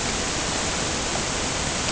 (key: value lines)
label: ambient
recorder: HydroMoth